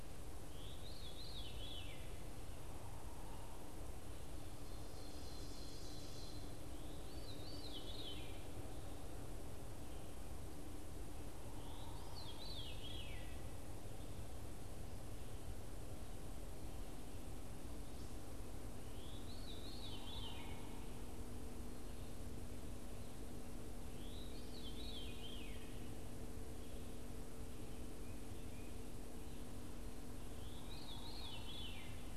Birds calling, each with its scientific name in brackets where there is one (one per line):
Ovenbird (Seiurus aurocapilla)
Veery (Catharus fuscescens)